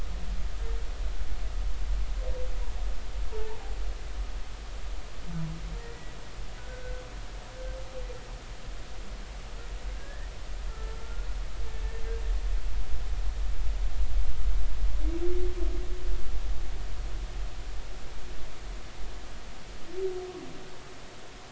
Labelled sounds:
4.3	4.6	humpback whale, 0.83 to 0.99 kHz
5.8	7.0	humpback whale, 1.4 to 2.0 kHz
10.0	11.3	humpback whale, 1.3 to 1.9 kHz

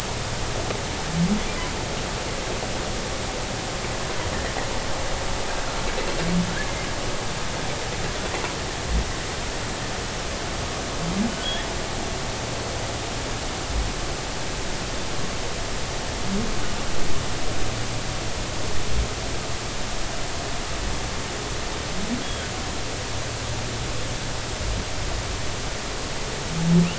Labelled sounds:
11.4	11.7	humpback whale, 3.1 to 3.5 kHz

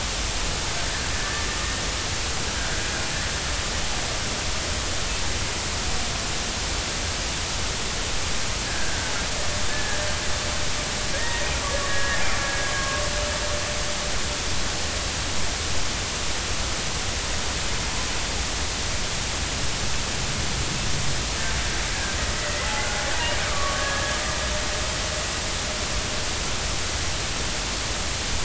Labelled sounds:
1.1	1.4	killer whale, Bigg's (transient), 1.7 to 1.8 kHz
8.7	10.0	killer whale, Bigg's (transient), 1.5 to 1.8 kHz
11.2	11.5	killer whale, Bigg's (transient), 1.8 to 2.0 kHz
12.4	13.2	killer whale, Bigg's (transient), 1.1 to 2.0 kHz
22.3	22.6	killer whale, Bigg's (transient), 1.9 to 2.0 kHz
23.5	24.2	killer whale, Bigg's (transient), 1.1 to 1.7 kHz

